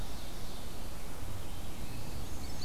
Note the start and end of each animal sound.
[0.00, 0.72] Ovenbird (Seiurus aurocapilla)
[1.07, 2.33] Black-throated Blue Warbler (Setophaga caerulescens)
[1.97, 2.65] Black-and-white Warbler (Mniotilta varia)

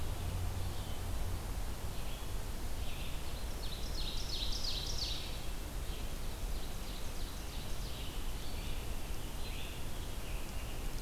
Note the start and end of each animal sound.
[0.00, 11.02] Red-eyed Vireo (Vireo olivaceus)
[3.25, 8.06] Ovenbird (Seiurus aurocapilla)

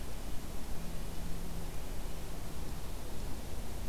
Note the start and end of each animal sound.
[0.00, 2.32] Red-breasted Nuthatch (Sitta canadensis)

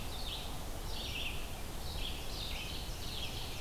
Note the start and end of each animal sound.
[0.00, 3.60] Red-eyed Vireo (Vireo olivaceus)
[1.76, 3.60] Ovenbird (Seiurus aurocapilla)

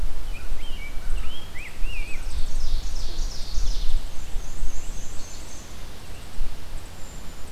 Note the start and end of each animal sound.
[0.00, 2.30] Rose-breasted Grosbeak (Pheucticus ludovicianus)
[1.74, 3.90] Ovenbird (Seiurus aurocapilla)
[3.95, 5.86] Black-and-white Warbler (Mniotilta varia)
[6.85, 7.42] Brown Creeper (Certhia americana)

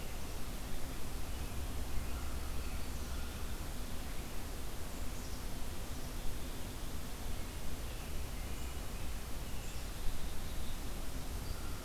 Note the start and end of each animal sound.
[2.01, 3.48] American Crow (Corvus brachyrhynchos)
[7.34, 9.93] American Robin (Turdus migratorius)
[9.30, 10.88] Black-capped Chickadee (Poecile atricapillus)

